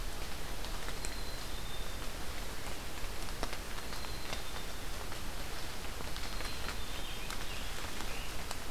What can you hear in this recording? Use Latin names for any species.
Poecile atricapillus, Piranga olivacea